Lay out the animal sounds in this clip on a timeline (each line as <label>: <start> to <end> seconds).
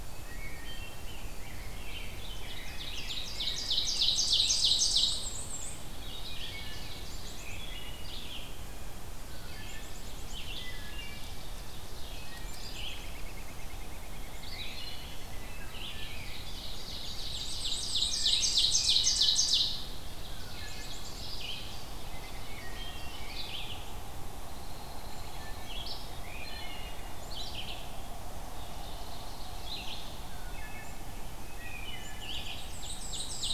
Black-capped Chickadee (Poecile atricapillus): 0.0 to 0.6 seconds
White-throated Sparrow (Zonotrichia albicollis): 0.0 to 2.2 seconds
Wood Thrush (Hylocichla mustelina): 0.0 to 0.8 seconds
Rose-breasted Grosbeak (Pheucticus ludovicianus): 0.6 to 4.7 seconds
Ovenbird (Seiurus aurocapilla): 1.7 to 5.3 seconds
Black-and-white Warbler (Mniotilta varia): 4.1 to 5.8 seconds
Ovenbird (Seiurus aurocapilla): 5.9 to 7.4 seconds
Wood Thrush (Hylocichla mustelina): 6.4 to 7.1 seconds
Black-capped Chickadee (Poecile atricapillus): 7.0 to 7.7 seconds
Wood Thrush (Hylocichla mustelina): 7.5 to 8.1 seconds
Red-eyed Vireo (Vireo olivaceus): 8.1 to 33.5 seconds
Wood Thrush (Hylocichla mustelina): 9.2 to 9.9 seconds
Black-capped Chickadee (Poecile atricapillus): 9.5 to 10.4 seconds
Ovenbird (Seiurus aurocapilla): 10.3 to 12.5 seconds
Wood Thrush (Hylocichla mustelina): 10.4 to 11.3 seconds
Black-capped Chickadee (Poecile atricapillus): 12.4 to 13.1 seconds
American Robin (Turdus migratorius): 12.9 to 16.7 seconds
Wood Thrush (Hylocichla mustelina): 15.3 to 15.9 seconds
Ovenbird (Seiurus aurocapilla): 16.0 to 20.0 seconds
Black-and-white Warbler (Mniotilta varia): 17.2 to 19.0 seconds
Wood Thrush (Hylocichla mustelina): 18.1 to 19.1 seconds
Wood Thrush (Hylocichla mustelina): 20.2 to 21.0 seconds
Black-capped Chickadee (Poecile atricapillus): 20.6 to 21.3 seconds
Ovenbird (Seiurus aurocapilla): 20.9 to 23.6 seconds
Wood Thrush (Hylocichla mustelina): 22.7 to 23.3 seconds
Hairy Woodpecker (Dryobates villosus): 24.2 to 25.8 seconds
Wood Thrush (Hylocichla mustelina): 25.1 to 25.7 seconds
Wood Thrush (Hylocichla mustelina): 26.3 to 26.9 seconds
Black-capped Chickadee (Poecile atricapillus): 27.1 to 27.6 seconds
Wood Thrush (Hylocichla mustelina): 28.5 to 29.1 seconds
Ovenbird (Seiurus aurocapilla): 28.6 to 30.1 seconds
Wood Thrush (Hylocichla mustelina): 30.3 to 30.9 seconds
Wood Thrush (Hylocichla mustelina): 31.5 to 32.1 seconds
Black-capped Chickadee (Poecile atricapillus): 31.6 to 32.6 seconds
Black-and-white Warbler (Mniotilta varia): 32.7 to 33.5 seconds
Ovenbird (Seiurus aurocapilla): 32.7 to 33.5 seconds